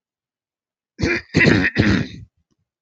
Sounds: Throat clearing